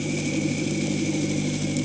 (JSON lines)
{"label": "anthrophony, boat engine", "recorder": "HydroMoth"}